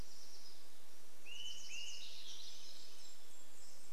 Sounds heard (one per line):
Swainson's Thrush song
Golden-crowned Kinglet song
unidentified sound
Swainson's Thrush call